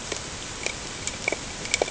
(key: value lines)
label: ambient
recorder: HydroMoth